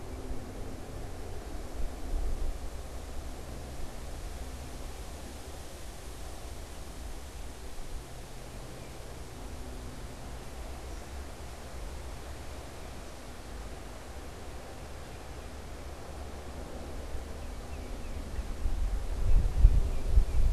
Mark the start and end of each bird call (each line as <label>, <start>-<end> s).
unidentified bird, 8.6-9.0 s
unidentified bird, 10.8-13.4 s
Tufted Titmouse (Baeolophus bicolor), 17.3-20.5 s